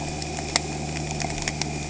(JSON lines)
{"label": "anthrophony, boat engine", "recorder": "HydroMoth"}